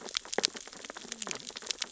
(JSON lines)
{"label": "biophony, sea urchins (Echinidae)", "recorder": "SoundTrap 600 or HydroMoth"}
{"label": "biophony, cascading saw", "recorder": "SoundTrap 600 or HydroMoth"}